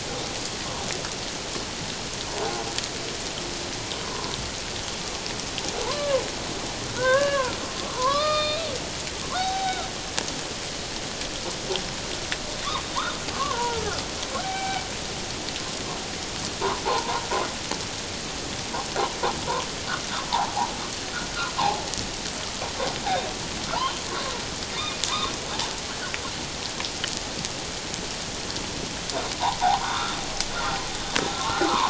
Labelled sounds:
4.0	4.3	humpback whale, 0.94 to 1.1 kHz
5.8	7.6	humpback whale, 0.84 to 2.9 kHz
7.9	9.9	humpback whale, 0.78 to 4.9 kHz
13.3	13.8	humpback whale, 0.84 to 1.5 kHz
14.4	14.9	humpback whale, 0.78 to 2.4 kHz
16.8	17.2	humpback whale, 0.78 to 1.1 kHz
21.6	21.9	humpback whale, 0.78 to 1.1 kHz
23.7	25.0	humpback whale, 2.2 to 3.3 kHz
29.6	30.1	humpback whale, 0.78 to 3.8 kHz
31.2	31.8	humpback whale, 0.78 to 1.4 kHz

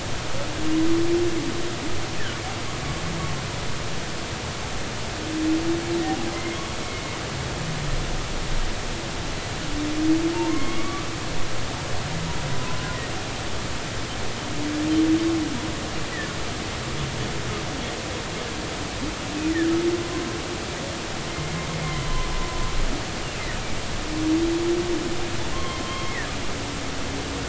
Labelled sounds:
10.5	11.1	humpback whale, 1.0 to 2.3 kHz
20.0	20.2	humpback whale, 0.99 to 1.1 kHz
21.3	22.3	humpback whale, 0.96 to 2.2 kHz
25.5	26.3	humpback whale, 0.99 to 3.3 kHz

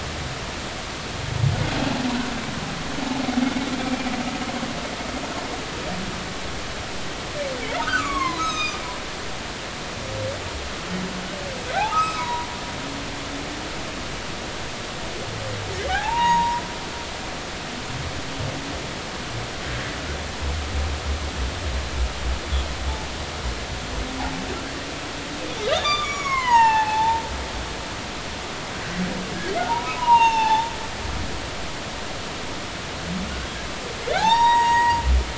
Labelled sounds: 7.8	8.8	humpback whale, 0.93 to 6.5 kHz
11.8	12.5	humpback whale, 0.80 to 2.6 kHz
15.9	16.6	humpback whale, 0.80 to 1.0 kHz
25.8	27.2	humpback whale, 0.80 to 6.9 kHz
29.6	30.7	humpback whale, 0.80 to 6.6 kHz
34.1	35.0	humpback whale, 0.80 to 7.7 kHz

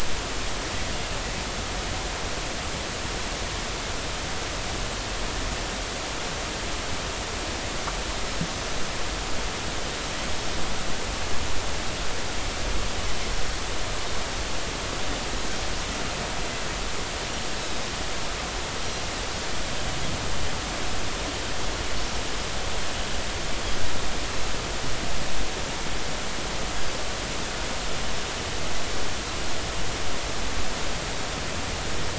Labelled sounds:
17.6	17.9	Pacific white-sided dolphin, 4.8 to 5.3 kHz

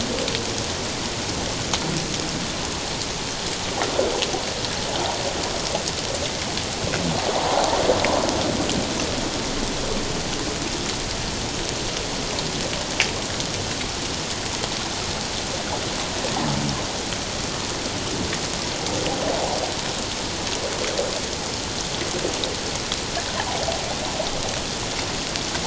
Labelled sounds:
7.4	7.8	water noise, 0.78 to 1.1 kHz

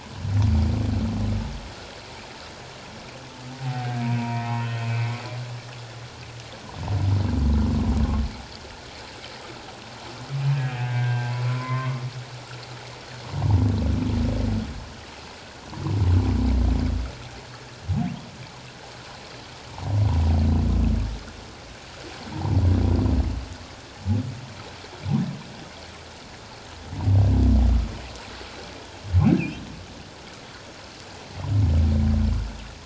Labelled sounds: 3.6	5.2	humpback whale, 0.78 to 3.3 kHz
10.6	12.0	humpback whale, 0.97 to 2.7 kHz
22.3	22.6	humpback whale, 0.78 to 1.1 kHz

